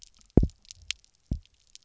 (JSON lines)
{"label": "biophony, double pulse", "recorder": "SoundTrap 300"}